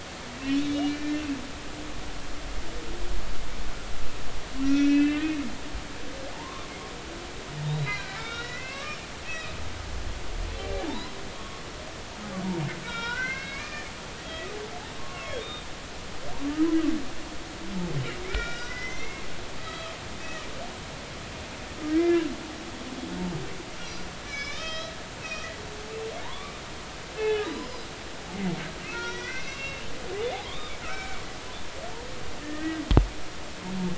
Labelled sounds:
0.6	1.4	humpback whale, 1.7 to 3.5 kHz
4.6	5.3	humpback whale, 1.3 to 3.2 kHz
6.3	6.7	humpback whale, 0.83 to 1.2 kHz
7.6	9.0	humpback whale, 1.1 to 4.2 kHz
9.2	9.6	humpback whale, 2.4 to 2.7 kHz
10.5	11.6	humpback whale, 0.83 to 4.1 kHz
12.8	13.9	humpback whale, 1.3 to 5.4 kHz
14.5	15.7	humpback whale, 1.0 to 3.7 kHz
18.2	19.3	humpback whale, 1.3 to 6.0 kHz
19.6	20.0	humpback whale, 1.1 to 4.0 kHz
21.9	22.3	humpback whale, 1.5 to 2.4 kHz
23.8	25.5	humpback whale, 1.1 to 6.0 kHz
26.2	27.9	humpback whale, 0.80 to 5.2 kHz
28.9	29.8	humpback whale, 0.90 to 5.9 kHz
30.4	31.2	humpback whale, 0.96 to 3.8 kHz
32.4	32.8	humpback whale, 1.7 to 2.0 kHz

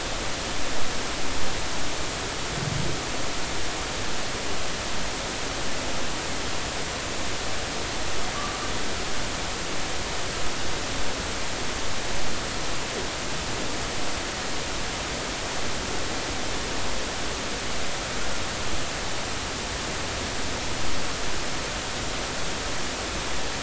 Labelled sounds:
8.3	8.6	humpback whale, 1.1 to 1.2 kHz

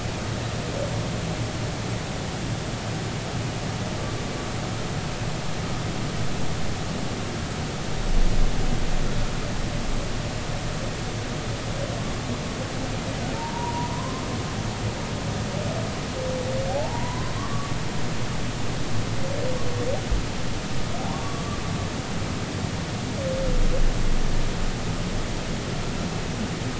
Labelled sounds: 13.3	14.2	humpback whale, 0.83 to 1.1 kHz
16.7	17.7	humpback whale, 0.80 to 1.2 kHz
21.2	21.6	humpback whale, 1.1 to 1.2 kHz

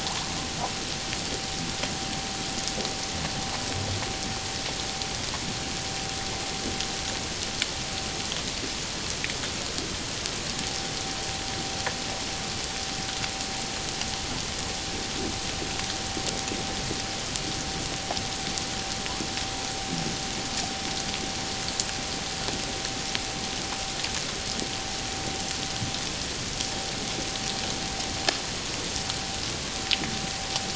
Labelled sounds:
0.1	0.3	humpback whale, 0.78 to 1.2 kHz
10.5	10.9	vessel noise, 0.78 to 0.84 kHz

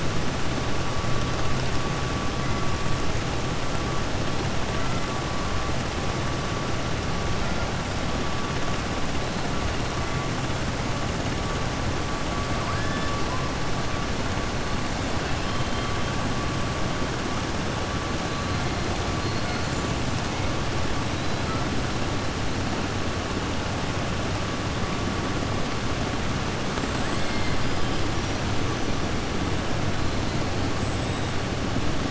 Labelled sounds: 12.6	13.1	killer whale, southern resident, 0.96 to 3.5 kHz

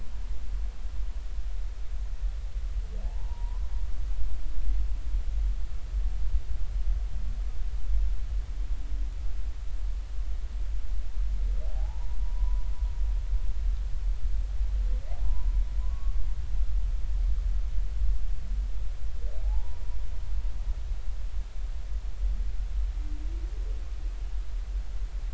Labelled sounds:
3.0	3.6	humpback whale, 0.80 to 1.1 kHz
11.6	12.6	humpback whale, 0.80 to 1.1 kHz
15.8	16.1	humpback whale, 0.96 to 1.2 kHz
19.4	19.8	humpback whale, 0.80 to 1.0 kHz

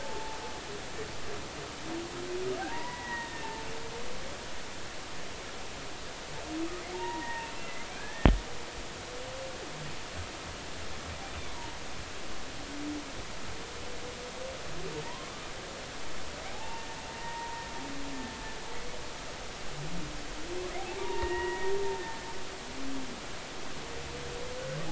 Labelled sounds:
2.7	3.6	humpback whale, 0.80 to 2.0 kHz
6.9	8.3	humpback whale, 0.83 to 2.1 kHz
15.0	15.3	humpback whale, 0.86 to 1.1 kHz
16.5	17.6	humpback whale, 0.80 to 1.9 kHz
21.0	21.7	humpback whale, 0.86 to 2.9 kHz

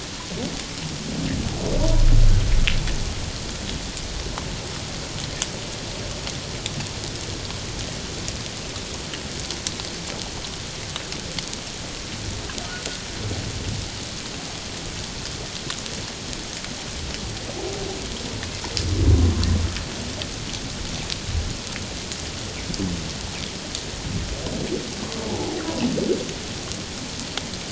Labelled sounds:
25.3	25.6	humpback whale, 0.78 to 0.91 kHz

